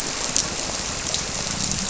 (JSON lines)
{"label": "biophony", "recorder": "SoundTrap 300"}